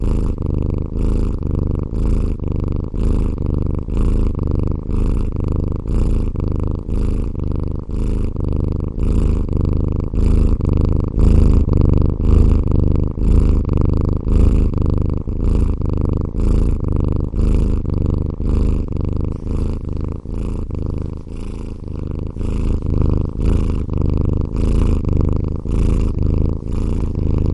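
A cat exhales. 0:00.0 - 0:00.4
A cat is purring. 0:00.4 - 0:27.5
A cat exhales. 0:01.0 - 0:06.3
A cat exhales. 0:06.9 - 0:07.3
A cat exhales. 0:07.9 - 0:08.3
A cat exhales. 0:09.0 - 0:09.5
A cat exhales. 0:10.1 - 0:10.6
A cat exhales. 0:11.2 - 0:13.6
A cat exhales. 0:14.3 - 0:14.7
A cat exhales. 0:15.3 - 0:16.8
A cat exhales. 0:17.4 - 0:17.8
A cat exhales. 0:18.4 - 0:20.7
A cat exhales quietly. 0:21.3 - 0:21.8
A cat exhales. 0:22.4 - 0:23.9
A cat exhales. 0:24.5 - 0:25.0
A cat exhales. 0:25.6 - 0:26.1
A cat exhales. 0:26.7 - 0:27.2

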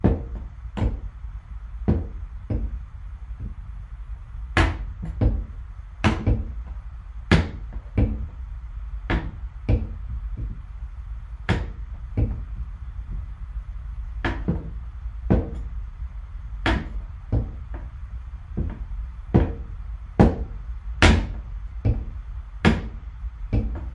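An axe repeatedly strikes a wooden floor or log. 0:00.0 - 0:23.9

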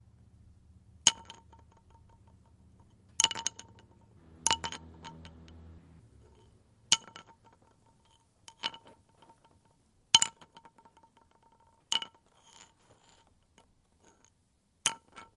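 An antler is dropped onto a stone floor, creating irregular sharp clattering sounds, followed by scraping and rolling noises before it is picked up. 0:01.0 - 0:15.4

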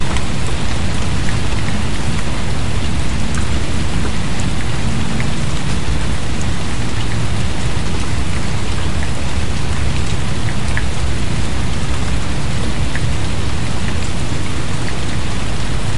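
Medium rain falls in the distance. 0:00.0 - 0:16.0

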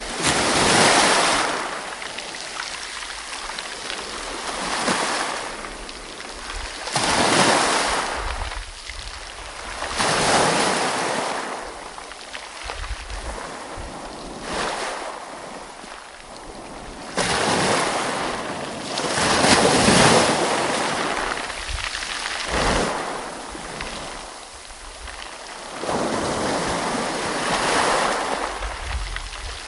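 Waves splash gently onto the shore, creating a loud, rhythmic crashing sound as the water meets the sand and rocks. 0:00.0 - 0:02.0
Sea waves retreating from the shore create soft crackling and crumbling sounds over sand and rocks. 0:02.1 - 0:04.6
Waves splash gently onto a sandy and rocky seashore. 0:04.8 - 0:05.5
Sea waves retreating from the shore create soft crackling and crumbling sounds over sand and rocks. 0:05.5 - 0:06.8
Waves splash gently onto the seashore, creating a loud, rhythmic crashing sound as the water meets the sand and rocks. 0:06.8 - 0:08.5
Sea waves retreating from the shore create soft crackling and crumbling sounds over sand and rocks. 0:08.5 - 0:09.8
Waves splash gently onto the seashore, creating a loud, rhythmic crashing sound as the water meets the sand and rocks. 0:09.8 - 0:11.7
Sea waves retreating from the shore create soft crackling and crumbling sounds over sand and rocks. 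0:11.8 - 0:14.5
Waves splash gently onto a sandy and rocky seashore. 0:14.5 - 0:15.2
Sea waves retreating from the shore create soft crackling and crumbling sounds over sand and rocks. 0:15.2 - 0:17.1
Waves splash gently onto the shore, creating a soft, rhythmic crashing sound as the water meets the sand and rocks. 0:17.0 - 0:18.8
Waves splash onto the seashore, creating a soft, rhythmic crashing sound as the water meets the sand and rocks. 0:18.9 - 0:21.0
Sea waves pulling back from the shore create an abrupt crackling and crumbling sound over the sand and rocks. 0:21.0 - 0:22.5
Waves splash gently onto the shore, creating a soft, rhythmic crashing sound as water meets sand and rocks. 0:22.4 - 0:23.2
Sea waves retreating from the shore create soft crackling and crumbling sounds over sand and rocks. 0:23.2 - 0:25.8
Waves splash onto the seashore, creating a soft, rhythmic crashing sound as the water meets the sand and rocks. 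0:25.8 - 0:28.1
Sea waves retreating from the shore create soft crackling and crumbling sounds over sand and rocks. 0:28.1 - 0:29.7

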